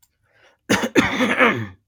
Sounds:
Throat clearing